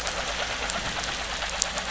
{"label": "anthrophony, boat engine", "recorder": "SoundTrap 500"}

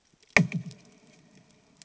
{"label": "anthrophony, bomb", "recorder": "HydroMoth"}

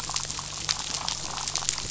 {"label": "anthrophony, boat engine", "recorder": "SoundTrap 500"}
{"label": "biophony, damselfish", "recorder": "SoundTrap 500"}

